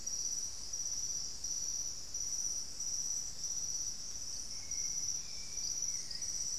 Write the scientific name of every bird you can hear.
Turdus hauxwelli